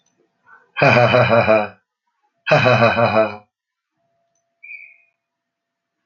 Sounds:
Laughter